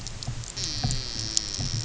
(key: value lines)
label: anthrophony, boat engine
recorder: SoundTrap 300

label: biophony
recorder: SoundTrap 300